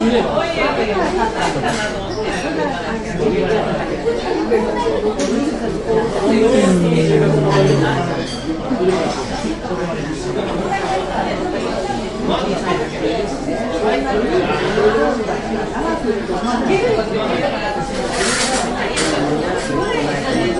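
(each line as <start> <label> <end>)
0.4 Many people are talking simultaneously in a public setting. 20.6
6.9 Dishes clinking together in the background. 9.2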